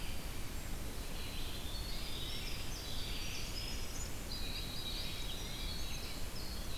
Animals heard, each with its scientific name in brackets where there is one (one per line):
Winter Wren (Troglodytes hiemalis)
Red-eyed Vireo (Vireo olivaceus)